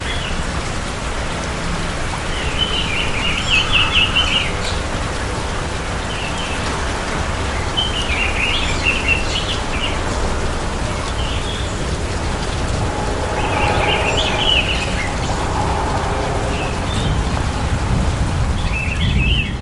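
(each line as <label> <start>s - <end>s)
Constant rain falling outside. 0.0s - 19.6s
Birds singing melodically. 2.4s - 5.1s
A bird chirps loudly. 6.2s - 11.4s
A bird chirping. 13.1s - 15.1s
Distant thunder growling repeatedly. 15.2s - 19.5s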